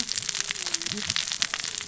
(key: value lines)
label: biophony, cascading saw
recorder: SoundTrap 600 or HydroMoth